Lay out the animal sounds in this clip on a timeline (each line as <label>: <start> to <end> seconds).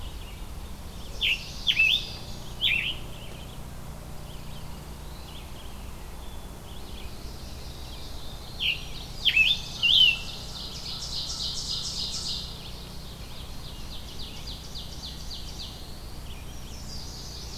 Red-eyed Vireo (Vireo olivaceus): 0.0 to 17.6 seconds
Chestnut-sided Warbler (Setophaga pensylvanica): 0.9 to 2.2 seconds
Scarlet Tanager (Piranga olivacea): 1.1 to 3.1 seconds
Black-throated Green Warbler (Setophaga virens): 1.6 to 2.6 seconds
Pine Warbler (Setophaga pinus): 4.0 to 5.0 seconds
Black-capped Chickadee (Poecile atricapillus): 6.1 to 7.0 seconds
Mourning Warbler (Geothlypis philadelphia): 7.0 to 8.5 seconds
Black-throated Blue Warbler (Setophaga caerulescens): 7.7 to 8.8 seconds
Scarlet Tanager (Piranga olivacea): 8.4 to 10.3 seconds
Black-throated Green Warbler (Setophaga virens): 8.5 to 9.6 seconds
Ovenbird (Seiurus aurocapilla): 9.0 to 12.7 seconds
American Crow (Corvus brachyrhynchos): 10.4 to 12.6 seconds
Mourning Warbler (Geothlypis philadelphia): 12.4 to 13.5 seconds
Ovenbird (Seiurus aurocapilla): 13.2 to 16.0 seconds
Black-throated Blue Warbler (Setophaga caerulescens): 15.3 to 16.3 seconds
Chestnut-sided Warbler (Setophaga pensylvanica): 16.4 to 17.6 seconds